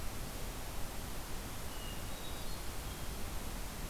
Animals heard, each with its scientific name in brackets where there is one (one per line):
Hermit Thrush (Catharus guttatus)